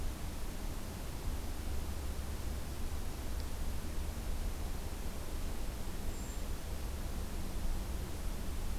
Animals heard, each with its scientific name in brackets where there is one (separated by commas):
Brown Creeper (Certhia americana)